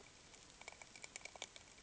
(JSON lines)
{"label": "ambient", "recorder": "HydroMoth"}